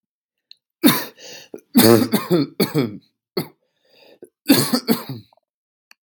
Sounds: Cough